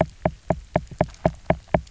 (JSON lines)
{"label": "biophony, knock", "recorder": "SoundTrap 300"}